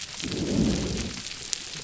{"label": "biophony", "recorder": "SoundTrap 300"}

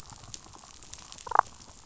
{"label": "biophony, damselfish", "recorder": "SoundTrap 500"}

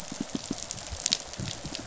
{"label": "biophony, pulse", "recorder": "SoundTrap 500"}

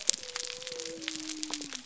{"label": "biophony", "recorder": "SoundTrap 300"}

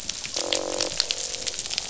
{"label": "biophony, croak", "recorder": "SoundTrap 500"}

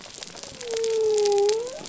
{"label": "biophony", "recorder": "SoundTrap 300"}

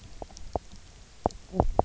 {"label": "biophony, knock croak", "recorder": "SoundTrap 300"}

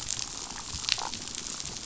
{"label": "biophony, damselfish", "recorder": "SoundTrap 500"}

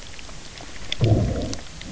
{"label": "biophony, low growl", "recorder": "SoundTrap 300"}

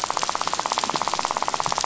{"label": "biophony, rattle", "recorder": "SoundTrap 500"}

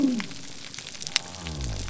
{"label": "biophony", "recorder": "SoundTrap 300"}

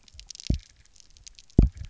{"label": "biophony, double pulse", "recorder": "SoundTrap 300"}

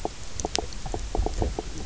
{"label": "biophony, knock croak", "recorder": "SoundTrap 300"}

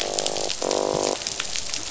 {"label": "biophony, croak", "recorder": "SoundTrap 500"}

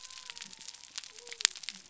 {"label": "biophony", "recorder": "SoundTrap 300"}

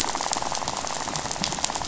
{"label": "biophony, rattle", "recorder": "SoundTrap 500"}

